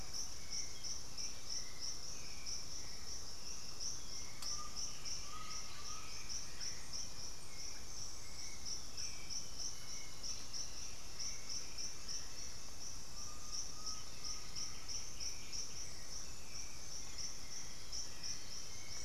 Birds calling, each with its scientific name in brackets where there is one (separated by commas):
Russet-backed Oropendola (Psarocolius angustifrons), White-winged Becard (Pachyramphus polychopterus), Hauxwell's Thrush (Turdus hauxwelli), Undulated Tinamou (Crypturellus undulatus), Elegant Woodcreeper (Xiphorhynchus elegans), Chestnut-winged Foliage-gleaner (Dendroma erythroptera)